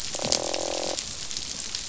{"label": "biophony, croak", "recorder": "SoundTrap 500"}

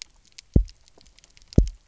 {"label": "biophony, double pulse", "recorder": "SoundTrap 300"}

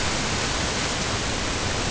{"label": "ambient", "recorder": "HydroMoth"}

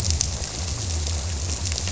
{"label": "biophony", "recorder": "SoundTrap 300"}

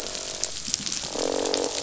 {"label": "biophony, croak", "recorder": "SoundTrap 500"}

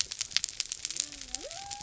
{"label": "biophony", "recorder": "SoundTrap 300"}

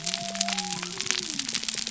{"label": "biophony", "recorder": "SoundTrap 300"}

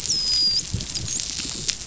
{"label": "biophony, dolphin", "recorder": "SoundTrap 500"}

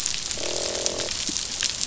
{"label": "biophony, croak", "recorder": "SoundTrap 500"}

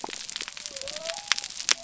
{"label": "biophony", "recorder": "SoundTrap 300"}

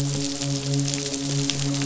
{"label": "biophony, midshipman", "recorder": "SoundTrap 500"}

